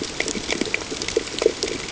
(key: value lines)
label: ambient
recorder: HydroMoth